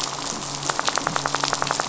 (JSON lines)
{"label": "anthrophony, boat engine", "recorder": "SoundTrap 500"}